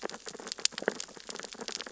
{"label": "biophony, sea urchins (Echinidae)", "recorder": "SoundTrap 600 or HydroMoth"}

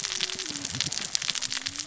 {"label": "biophony, cascading saw", "recorder": "SoundTrap 600 or HydroMoth"}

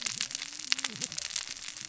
{"label": "biophony, cascading saw", "recorder": "SoundTrap 600 or HydroMoth"}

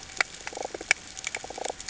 {"label": "ambient", "recorder": "HydroMoth"}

